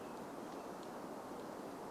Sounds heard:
American Robin song

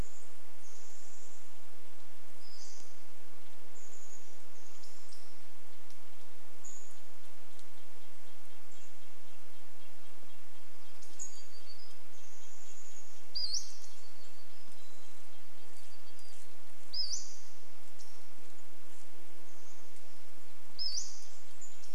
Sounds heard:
Pacific-slope Flycatcher call
warbler song
Chestnut-backed Chickadee call
unidentified bird chip note
insect buzz
Red-breasted Nuthatch song

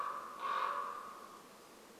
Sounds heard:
Common Raven call

